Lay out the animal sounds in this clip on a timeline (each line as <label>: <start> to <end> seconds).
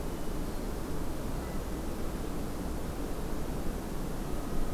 Hermit Thrush (Catharus guttatus): 0.0 to 0.8 seconds